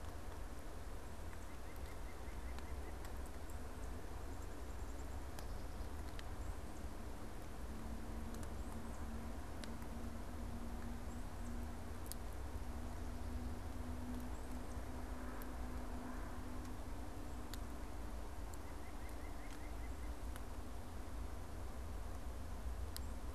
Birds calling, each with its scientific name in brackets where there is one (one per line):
Tufted Titmouse (Baeolophus bicolor)
White-breasted Nuthatch (Sitta carolinensis)
Black-capped Chickadee (Poecile atricapillus)